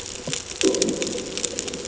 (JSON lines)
{"label": "anthrophony, bomb", "recorder": "HydroMoth"}